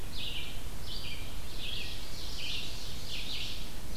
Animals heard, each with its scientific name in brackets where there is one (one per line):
Red-eyed Vireo (Vireo olivaceus)
Ovenbird (Seiurus aurocapilla)